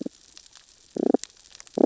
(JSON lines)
{"label": "biophony, damselfish", "recorder": "SoundTrap 600 or HydroMoth"}